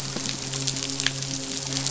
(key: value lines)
label: biophony, midshipman
recorder: SoundTrap 500